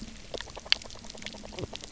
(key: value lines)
label: biophony, knock croak
recorder: SoundTrap 300